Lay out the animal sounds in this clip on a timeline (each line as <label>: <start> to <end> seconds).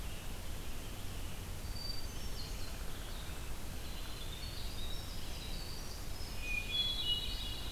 Red-eyed Vireo (Vireo olivaceus): 0.0 to 7.7 seconds
Hermit Thrush (Catharus guttatus): 1.7 to 2.8 seconds
Downy Woodpecker (Dryobates pubescens): 2.5 to 3.7 seconds
Winter Wren (Troglodytes hiemalis): 3.7 to 7.7 seconds
Hermit Thrush (Catharus guttatus): 6.3 to 7.7 seconds